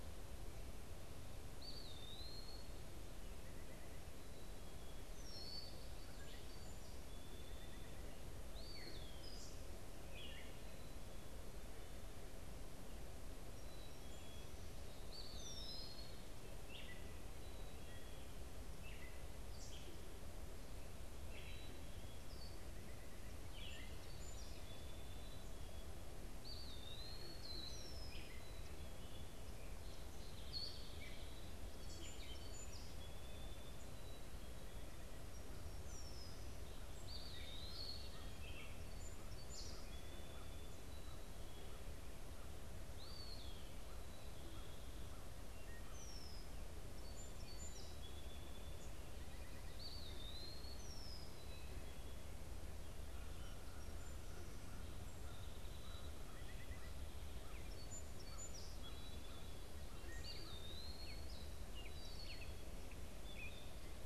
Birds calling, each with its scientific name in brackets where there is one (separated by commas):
Black-capped Chickadee (Poecile atricapillus), Gray Catbird (Dumetella carolinensis), Red-winged Blackbird (Agelaius phoeniceus), Eastern Wood-Pewee (Contopus virens), American Crow (Corvus brachyrhynchos), unidentified bird, Song Sparrow (Melospiza melodia)